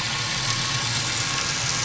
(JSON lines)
{"label": "anthrophony, boat engine", "recorder": "SoundTrap 500"}